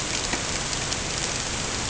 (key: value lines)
label: ambient
recorder: HydroMoth